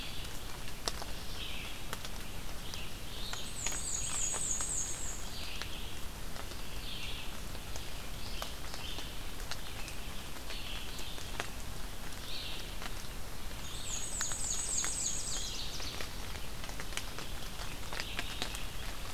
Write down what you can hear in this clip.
Red-eyed Vireo, Black-and-white Warbler, Ovenbird